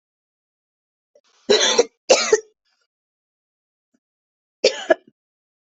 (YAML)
expert_labels:
- quality: good
  cough_type: dry
  dyspnea: false
  wheezing: false
  stridor: false
  choking: false
  congestion: false
  nothing: true
  diagnosis: upper respiratory tract infection
  severity: mild
age: 19
gender: female
respiratory_condition: true
fever_muscle_pain: false
status: symptomatic